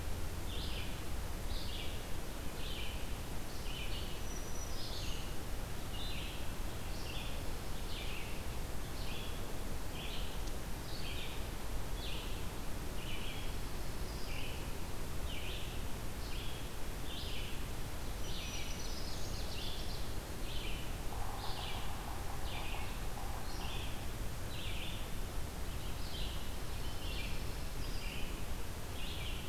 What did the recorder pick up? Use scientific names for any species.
Vireo olivaceus, Setophaga virens, Setophaga pinus, Seiurus aurocapilla, Sphyrapicus varius